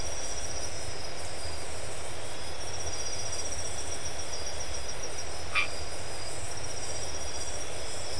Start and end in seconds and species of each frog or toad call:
5.4	5.7	Boana albomarginata
Atlantic Forest, Brazil, 11:30pm

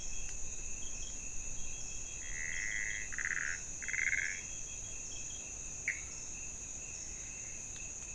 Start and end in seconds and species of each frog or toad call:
2.1	4.7	Pithecopus azureus
Cerrado, Brazil, 3:00am

